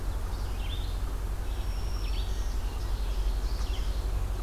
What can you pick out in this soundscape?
Red-eyed Vireo, Black-throated Green Warbler, Ovenbird